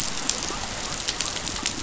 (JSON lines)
{"label": "biophony", "recorder": "SoundTrap 500"}